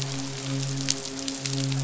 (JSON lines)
{"label": "biophony, midshipman", "recorder": "SoundTrap 500"}